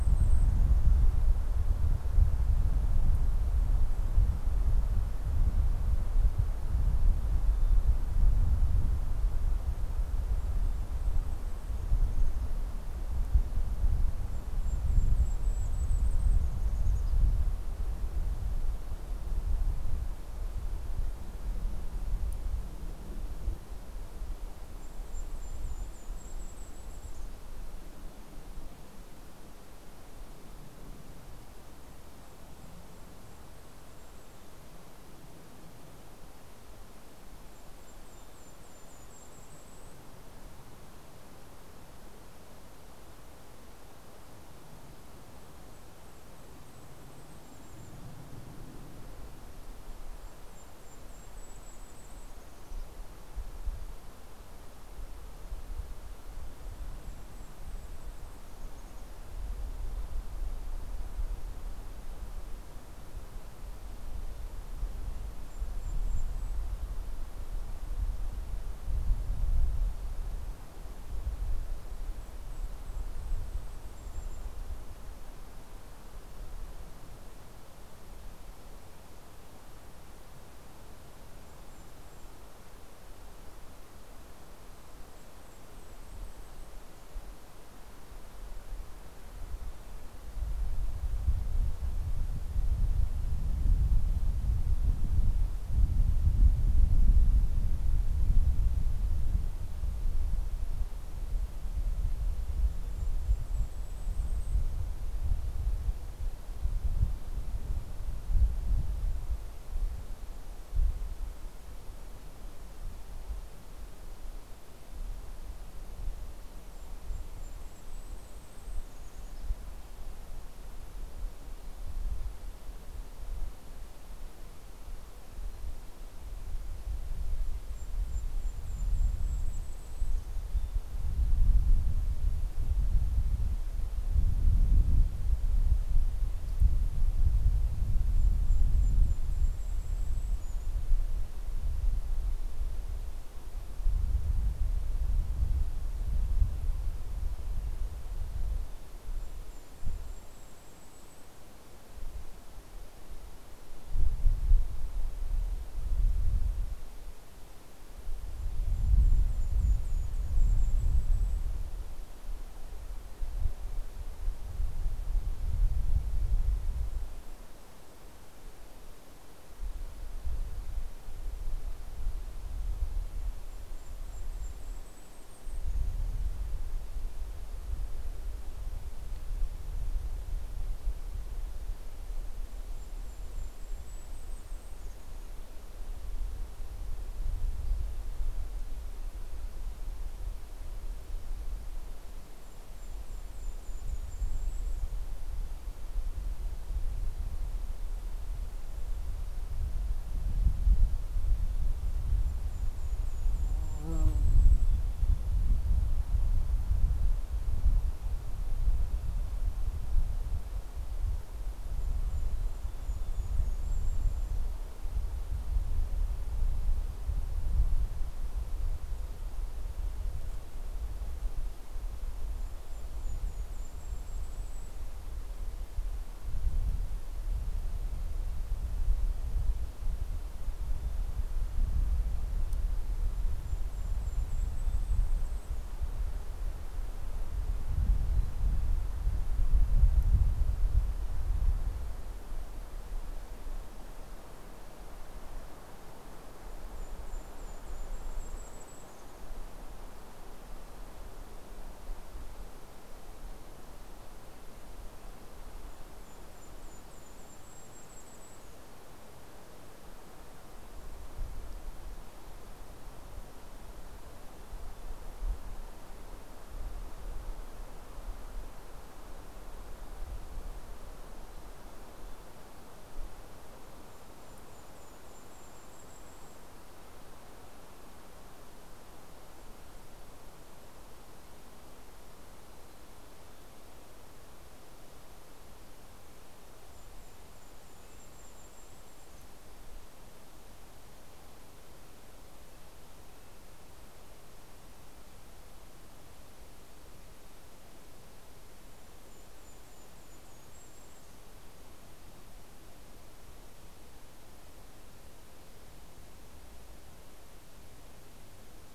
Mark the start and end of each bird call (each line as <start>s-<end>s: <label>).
0.0s-1.1s: Golden-crowned Kinglet (Regulus satrapa)
2.7s-4.3s: Golden-crowned Kinglet (Regulus satrapa)
6.2s-8.2s: Mountain Chickadee (Poecile gambeli)
9.7s-13.0s: Golden-crowned Kinglet (Regulus satrapa)
14.5s-17.9s: Golden-crowned Kinglet (Regulus satrapa)
23.9s-28.3s: Golden-crowned Kinglet (Regulus satrapa)
31.3s-34.7s: Golden-crowned Kinglet (Regulus satrapa)
37.1s-40.7s: Golden-crowned Kinglet (Regulus satrapa)
45.0s-48.6s: Golden-crowned Kinglet (Regulus satrapa)
49.4s-53.5s: Golden-crowned Kinglet (Regulus satrapa)
56.0s-59.6s: Golden-crowned Kinglet (Regulus satrapa)
64.8s-67.6s: Golden-crowned Kinglet (Regulus satrapa)
72.1s-74.8s: Golden-crowned Kinglet (Regulus satrapa)
81.0s-87.1s: Golden-crowned Kinglet (Regulus satrapa)
102.1s-105.6s: Golden-crowned Kinglet (Regulus satrapa)
116.5s-120.2s: Golden-crowned Kinglet (Regulus satrapa)
127.1s-130.8s: Golden-crowned Kinglet (Regulus satrapa)
129.4s-131.2s: Mountain Chickadee (Poecile gambeli)
137.5s-141.4s: Golden-crowned Kinglet (Regulus satrapa)
149.0s-152.0s: Golden-crowned Kinglet (Regulus satrapa)
157.8s-162.0s: Golden-crowned Kinglet (Regulus satrapa)
166.1s-168.1s: Golden-crowned Kinglet (Regulus satrapa)
173.0s-176.2s: Golden-crowned Kinglet (Regulus satrapa)
182.1s-185.4s: Golden-crowned Kinglet (Regulus satrapa)
192.2s-195.5s: Golden-crowned Kinglet (Regulus satrapa)
201.1s-205.1s: Golden-crowned Kinglet (Regulus satrapa)
204.1s-205.4s: Mountain Chickadee (Poecile gambeli)
211.7s-214.9s: Golden-crowned Kinglet (Regulus satrapa)
212.0s-213.7s: Mountain Chickadee (Poecile gambeli)
221.7s-225.5s: Golden-crowned Kinglet (Regulus satrapa)
232.8s-236.1s: Golden-crowned Kinglet (Regulus satrapa)
233.7s-235.3s: Mountain Chickadee (Poecile gambeli)
237.7s-239.5s: Mountain Chickadee (Poecile gambeli)
246.4s-249.6s: Golden-crowned Kinglet (Regulus satrapa)
254.7s-259.5s: Golden-crowned Kinglet (Regulus satrapa)
270.9s-272.8s: Mountain Chickadee (Poecile gambeli)
273.5s-277.0s: Golden-crowned Kinglet (Regulus satrapa)
282.0s-283.8s: Mountain Chickadee (Poecile gambeli)
286.3s-290.3s: Golden-crowned Kinglet (Regulus satrapa)
287.3s-293.6s: Red-breasted Nuthatch (Sitta canadensis)
298.6s-301.8s: Golden-crowned Kinglet (Regulus satrapa)